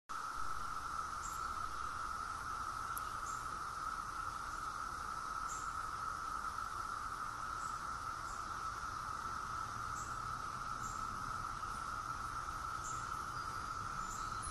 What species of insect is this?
Magicicada septendecim